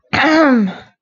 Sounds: Throat clearing